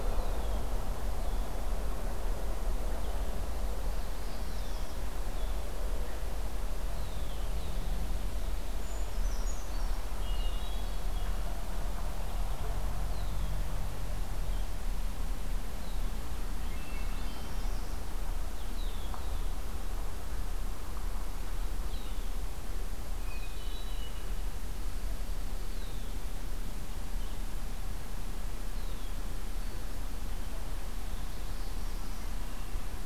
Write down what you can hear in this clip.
Red-winged Blackbird, Northern Parula, Brown Creeper, Hermit Thrush, Blue-headed Vireo